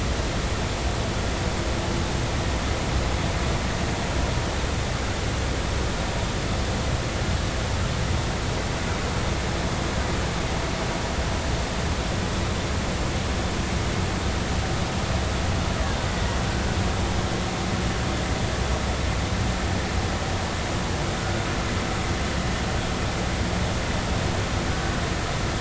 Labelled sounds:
21.2	21.4	vessel noise, 1.4 to 1.5 kHz

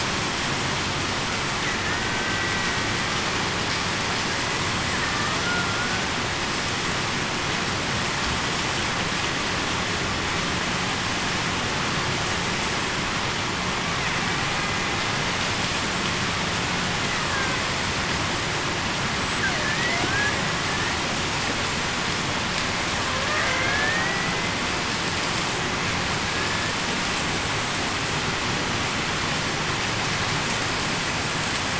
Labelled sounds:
1.9	2.4	killer whale, Bigg's (transient), 1.4 to 1.6 kHz
5.4	5.8	killer whale, Bigg's (transient), 1.4 to 1.5 kHz
23.6	24.5	killer whale, Bigg's (transient), 1.5 to 2.1 kHz
26.3	26.7	killer whale, Bigg's (transient), 1.6 to 1.8 kHz

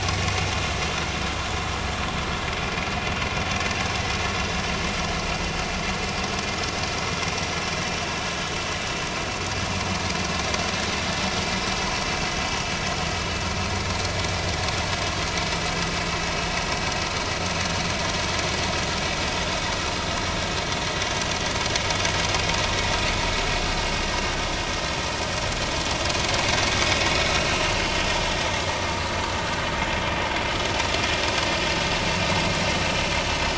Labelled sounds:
29.4	29.7	vessel noise, 1.4 to 1.6 kHz

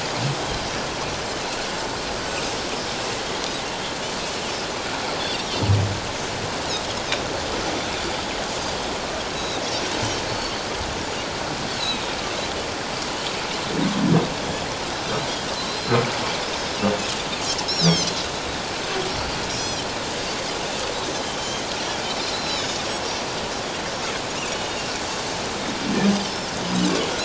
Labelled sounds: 9.3	9.6	Pacific white-sided dolphin, 3.6 to 4.0 kHz
10.3	10.5	Pacific white-sided dolphin, 4.3 to 4.5 kHz
11.7	12.1	Pacific white-sided dolphin, 3.6 to 4.6 kHz
15.7	16.0	Pacific white-sided dolphin, 3.9 to 4.2 kHz
17.6	18.2	Pacific white-sided dolphin, 2.9 to 6.4 kHz
19.5	19.8	Pacific white-sided dolphin, 4.8 to 7.7 kHz
21.1	21.4	Pacific white-sided dolphin, 3.0 to 3.2 kHz
22.3	23.3	Pacific white-sided dolphin, 3.4 to 7.1 kHz

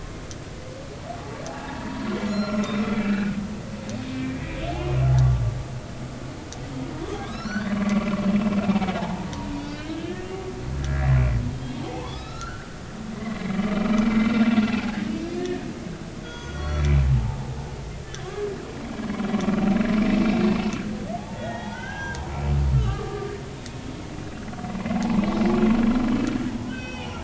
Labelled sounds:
1.6	4.4	humpback whale, 0.80 to 7.0 kHz
7.2	7.8	humpback whale, 1.0 to 5.5 kHz
9.0	11.1	humpback whale, 0.80 to 4.8 kHz
11.5	15.0	humpback whale, 0.80 to 4.2 kHz
15.3	15.6	humpback whale, 1.7 to 2.0 kHz
16.2	17.5	humpback whale, 0.80 to 6.3 kHz
18.2	18.5	humpback whale, 0.99 to 1.3 kHz
20.3	22.2	humpback whale, 0.80 to 6.0 kHz
22.7	23.3	humpback whale, 1.1 to 3.2 kHz
26.7	27.2	humpback whale, 1.4 to 4.7 kHz

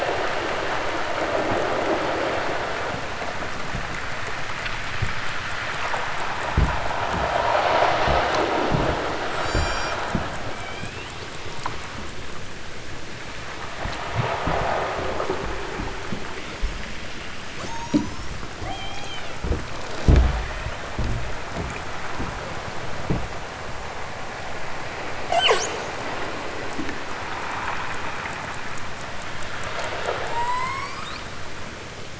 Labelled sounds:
9.3	10.0	killer whale, southern Alaska resident, 2.0 to 8.0 kHz
10.4	11.3	killer whale, southern Alaska resident, 0.37 to 5.4 kHz
17.5	19.4	killer whale, southern Alaska resident, 0.51 to 8.0 kHz
25.3	25.8	killer whale, southern Alaska resident, 0.23 to 8.0 kHz
30.1	31.3	killer whale, southern Alaska resident, 0.41 to 8.0 kHz

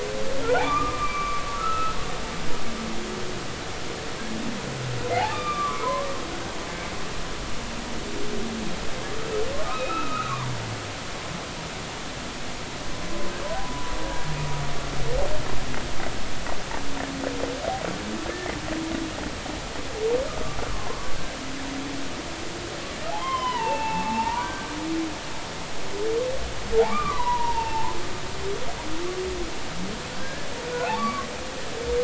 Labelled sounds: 0.4	2.0	humpback whale, 0.80 to 2.5 kHz
5.1	6.1	humpback whale, 0.80 to 3.7 kHz
9.6	10.5	humpback whale, 0.90 to 2.7 kHz
13.6	13.9	humpback whale, 0.93 to 1.0 kHz
20.7	21.1	humpback whale, 0.90 to 1.2 kHz
23.1	24.8	humpback whale, 0.80 to 5.2 kHz
26.8	28.0	humpback whale, 0.83 to 2.8 kHz
30.2	31.3	humpback whale, 1.0 to 4.6 kHz

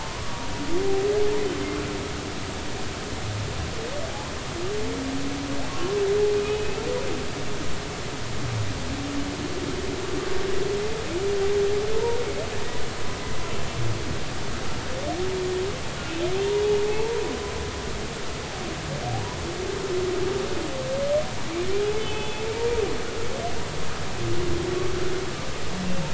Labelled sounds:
0.0	0.4	humpback whale, 0.93 to 1.2 kHz
5.7	6.0	humpback whale, 1.0 to 1.2 kHz
6.4	6.8	humpback whale, 2.4 to 2.7 kHz
11.9	12.2	humpback whale, 0.86 to 0.99 kHz
16.9	17.1	humpback whale, 0.80 to 0.96 kHz
22.0	22.8	humpback whale, 0.83 to 3.5 kHz

